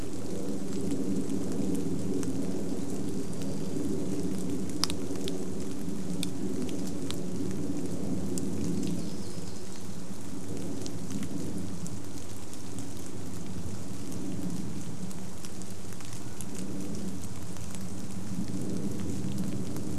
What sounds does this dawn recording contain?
airplane, rain, warbler song, Common Raven call